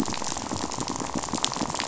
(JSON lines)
{"label": "biophony, rattle", "recorder": "SoundTrap 500"}